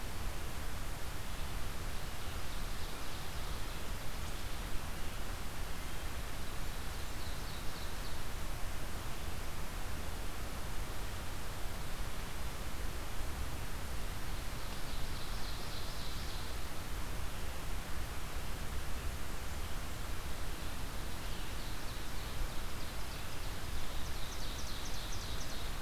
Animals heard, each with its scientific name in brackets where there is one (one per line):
Ovenbird (Seiurus aurocapilla)